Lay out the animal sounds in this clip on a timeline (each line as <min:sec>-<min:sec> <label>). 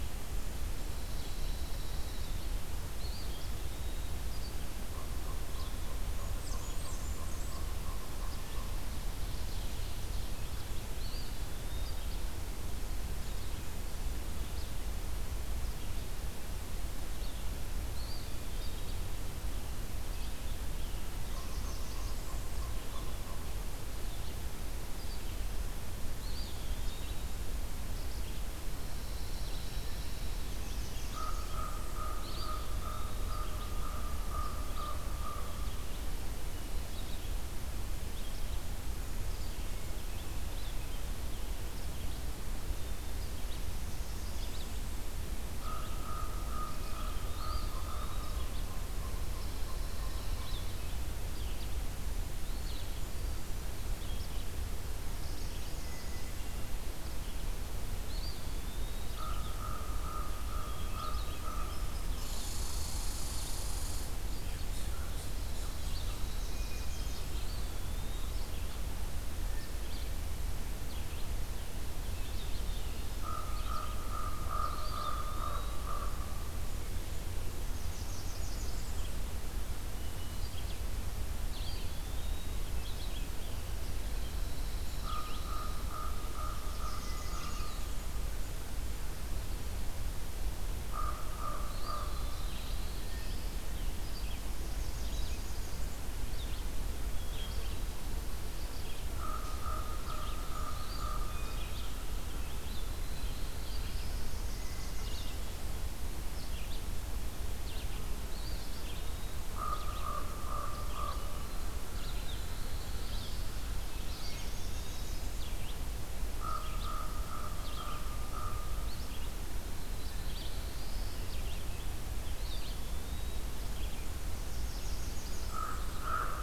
0:00.7-2:06.4 Red-eyed Vireo (Vireo olivaceus)
0:00.7-0:02.3 Pine Warbler (Setophaga pinus)
0:02.9-0:04.2 Eastern Wood-Pewee (Contopus virens)
0:04.8-0:08.8 Common Raven (Corvus corax)
0:05.9-0:08.0 Blackburnian Warbler (Setophaga fusca)
0:10.9-0:12.3 Eastern Wood-Pewee (Contopus virens)
0:17.8-0:19.3 Eastern Wood-Pewee (Contopus virens)
0:20.7-0:23.0 Northern Parula (Setophaga americana)
0:21.2-0:23.8 Common Raven (Corvus corax)
0:26.1-0:27.4 Eastern Wood-Pewee (Contopus virens)
0:28.7-0:30.4 Pine Warbler (Setophaga pinus)
0:30.2-0:31.7 Northern Parula (Setophaga americana)
0:31.0-0:36.0 Common Raven (Corvus corax)
0:32.1-0:33.4 Eastern Wood-Pewee (Contopus virens)
0:43.6-0:45.1 Blackburnian Warbler (Setophaga fusca)
0:45.5-0:50.7 Common Raven (Corvus corax)
0:47.3-0:48.6 Eastern Wood-Pewee (Contopus virens)
0:49.2-0:50.9 Pine Warbler (Setophaga pinus)
0:52.3-0:53.6 Eastern Wood-Pewee (Contopus virens)
0:55.0-0:56.6 Northern Parula (Setophaga americana)
0:58.0-0:59.3 Eastern Wood-Pewee (Contopus virens)
0:59.1-1:02.3 Common Raven (Corvus corax)
1:01.6-1:04.1 Red Squirrel (Tamiasciurus hudsonicus)
1:06.2-1:07.8 Northern Parula (Setophaga americana)
1:07.1-1:08.5 Eastern Wood-Pewee (Contopus virens)
1:13.2-1:16.6 Common Raven (Corvus corax)
1:14.5-1:15.9 Eastern Wood-Pewee (Contopus virens)
1:17.5-1:19.5 Northern Parula (Setophaga americana)
1:21.4-1:22.9 Eastern Wood-Pewee (Contopus virens)
1:23.9-1:25.9 Pine Warbler (Setophaga pinus)
1:24.9-1:28.0 Common Raven (Corvus corax)
1:26.1-1:28.4 Northern Parula (Setophaga americana)
1:27.0-1:28.1 Eastern Wood-Pewee (Contopus virens)
1:30.8-1:32.9 Common Raven (Corvus corax)
1:31.6-1:33.6 Eastern Wood-Pewee (Contopus virens)
1:32.1-1:33.7 Black-throated Blue Warbler (Setophaga caerulescens)
1:34.4-1:36.2 Northern Parula (Setophaga americana)
1:39.1-1:42.2 Common Raven (Corvus corax)
1:40.7-1:41.9 Eastern Wood-Pewee (Contopus virens)
1:42.8-1:44.5 Black-throated Blue Warbler (Setophaga caerulescens)
1:44.2-1:45.8 Northern Parula (Setophaga americana)
1:48.2-1:49.6 Eastern Wood-Pewee (Contopus virens)
1:49.5-1:51.8 Common Raven (Corvus corax)
1:51.0-1:51.9 Hermit Thrush (Catharus guttatus)
1:52.1-1:53.6 Black-throated Blue Warbler (Setophaga caerulescens)
1:53.6-1:56.0 Northern Parula (Setophaga americana)
1:53.8-1:55.3 Eastern Wood-Pewee (Contopus virens)
1:56.3-1:59.1 Common Raven (Corvus corax)
1:59.6-2:01.7 Black-throated Blue Warbler (Setophaga caerulescens)
2:02.3-2:03.6 Eastern Wood-Pewee (Contopus virens)
2:04.1-2:06.4 Northern Parula (Setophaga americana)
2:05.4-2:06.4 Common Raven (Corvus corax)